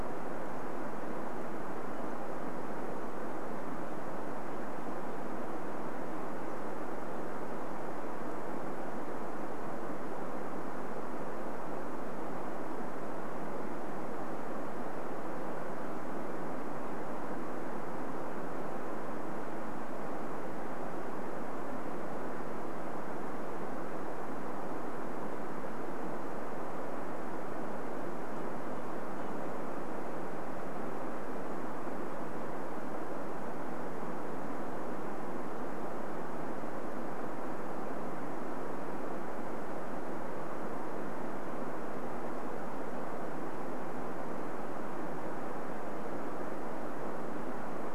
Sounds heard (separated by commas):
Red-breasted Nuthatch song